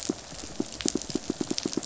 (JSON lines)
{"label": "biophony, pulse", "recorder": "SoundTrap 500"}